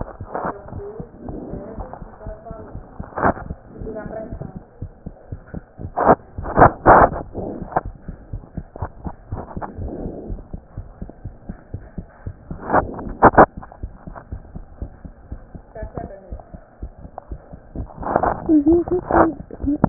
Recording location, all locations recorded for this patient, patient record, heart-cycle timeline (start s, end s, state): pulmonary valve (PV)
aortic valve (AV)+pulmonary valve (PV)+tricuspid valve (TV)+mitral valve (MV)
#Age: Child
#Sex: Male
#Height: nan
#Weight: nan
#Pregnancy status: False
#Murmur: Absent
#Murmur locations: nan
#Most audible location: nan
#Systolic murmur timing: nan
#Systolic murmur shape: nan
#Systolic murmur grading: nan
#Systolic murmur pitch: nan
#Systolic murmur quality: nan
#Diastolic murmur timing: nan
#Diastolic murmur shape: nan
#Diastolic murmur grading: nan
#Diastolic murmur pitch: nan
#Diastolic murmur quality: nan
#Outcome: Abnormal
#Campaign: 2015 screening campaign
0.00	8.14	unannotated
8.14	8.32	diastole
8.32	8.42	S1
8.42	8.54	systole
8.54	8.64	S2
8.64	8.80	diastole
8.80	8.94	S1
8.94	9.04	systole
9.04	9.14	S2
9.14	9.30	diastole
9.30	9.44	S1
9.44	9.54	systole
9.54	9.64	S2
9.64	9.80	diastole
9.80	9.92	S1
9.92	10.02	systole
10.02	10.12	S2
10.12	10.30	diastole
10.30	10.40	S1
10.40	10.52	systole
10.52	10.60	S2
10.60	10.78	diastole
10.78	10.88	S1
10.88	11.00	systole
11.00	11.08	S2
11.08	11.24	diastole
11.24	11.34	S1
11.34	11.44	systole
11.44	11.56	S2
11.56	11.72	diastole
11.72	11.82	S1
11.82	11.92	systole
11.92	12.04	S2
12.04	12.24	diastole
12.24	12.34	S1
12.34	12.47	systole
12.47	12.55	S2
12.55	12.79	diastole
12.79	12.90	S1
12.90	13.04	systole
13.04	13.18	S2
13.18	13.81	unannotated
13.81	13.94	S1
13.94	14.04	systole
14.04	14.12	S2
14.12	14.30	diastole
14.30	14.40	S1
14.40	14.50	systole
14.50	14.62	S2
14.62	14.80	diastole
14.80	14.94	S1
14.94	15.02	systole
15.02	15.12	S2
15.12	15.29	diastole
15.29	15.40	S1
15.40	15.51	systole
15.51	15.58	S2
15.58	15.78	diastole
15.78	15.90	S1
15.90	15.98	systole
15.98	16.12	S2
16.12	16.30	diastole
16.30	16.42	S1
16.42	16.52	systole
16.52	16.62	S2
16.62	16.80	diastole
16.80	16.91	S1
16.91	17.02	systole
17.02	17.12	S2
17.12	17.29	diastole
17.29	17.40	S1
17.40	17.50	systole
17.50	17.57	S2
17.57	17.64	diastole
17.64	19.89	unannotated